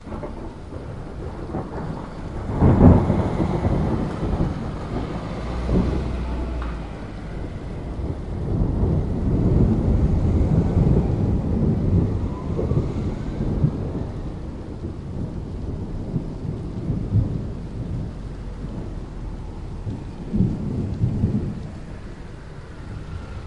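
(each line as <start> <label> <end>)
0.0 Deep thunder growling nearby, fading over time. 8.3
0.0 Continuous, gentle rain falling. 23.5
2.4 Multiple vehicles pass by in the distance with a low, intermittent hum. 23.4
8.3 Deep thunder growling fades over time. 20.3
20.4 Deep growling thunder in the distance. 23.5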